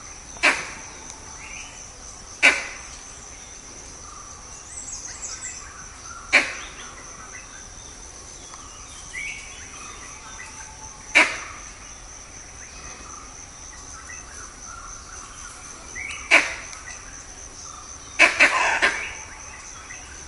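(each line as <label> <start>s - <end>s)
Multiple birds chirp. 0.0s - 20.3s
A monkey alarm call. 0.4s - 0.7s
A monkey alarm call. 2.4s - 2.7s
A monkey alarm call. 6.3s - 6.6s
A monkey alarm call. 11.1s - 11.5s
A monkey alarm call. 16.3s - 16.8s
Multiple monkeys making alarm calls. 18.1s - 19.2s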